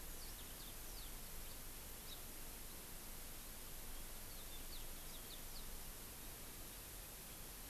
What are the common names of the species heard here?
Yellow-fronted Canary